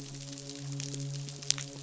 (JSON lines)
{"label": "biophony, midshipman", "recorder": "SoundTrap 500"}